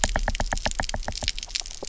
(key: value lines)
label: biophony, knock
recorder: SoundTrap 300